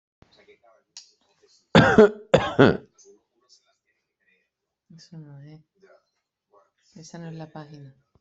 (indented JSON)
{
  "expert_labels": [
    {
      "quality": "ok",
      "cough_type": "dry",
      "dyspnea": false,
      "wheezing": false,
      "stridor": false,
      "choking": false,
      "congestion": false,
      "nothing": true,
      "diagnosis": "upper respiratory tract infection",
      "severity": "mild"
    }
  ]
}